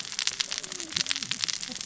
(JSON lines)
{"label": "biophony, cascading saw", "recorder": "SoundTrap 600 or HydroMoth"}